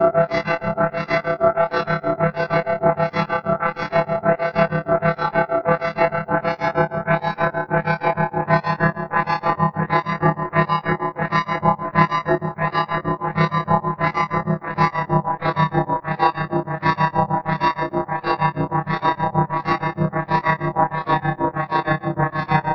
Does the sound change pitch?
yes